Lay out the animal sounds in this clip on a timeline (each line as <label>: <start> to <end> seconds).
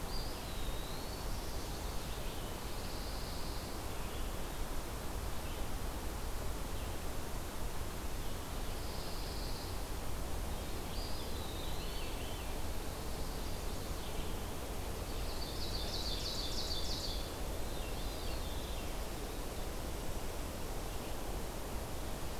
Eastern Wood-Pewee (Contopus virens): 0.0 to 1.3 seconds
Chestnut-sided Warbler (Setophaga pensylvanica): 1.3 to 2.5 seconds
Pine Warbler (Setophaga pinus): 2.5 to 3.8 seconds
Pine Warbler (Setophaga pinus): 8.7 to 9.9 seconds
Eastern Wood-Pewee (Contopus virens): 10.9 to 12.0 seconds
Veery (Catharus fuscescens): 11.5 to 12.5 seconds
Chestnut-sided Warbler (Setophaga pensylvanica): 13.2 to 14.1 seconds
Ovenbird (Seiurus aurocapilla): 15.1 to 17.3 seconds
Veery (Catharus fuscescens): 17.6 to 19.1 seconds